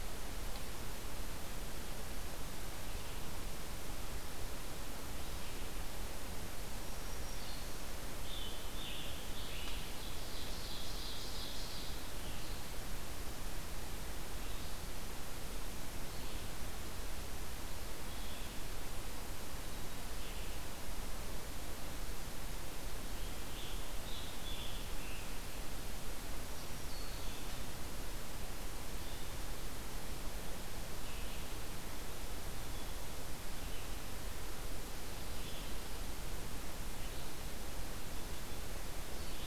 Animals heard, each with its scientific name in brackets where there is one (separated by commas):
Ovenbird (Seiurus aurocapilla), Red-eyed Vireo (Vireo olivaceus), Scarlet Tanager (Piranga olivacea), Black-throated Green Warbler (Setophaga virens)